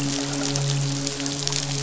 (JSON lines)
{"label": "biophony, midshipman", "recorder": "SoundTrap 500"}